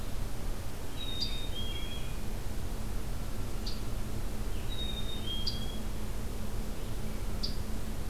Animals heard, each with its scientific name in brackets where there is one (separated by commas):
Scarlet Tanager (Piranga olivacea), American Robin (Turdus migratorius), Black-capped Chickadee (Poecile atricapillus)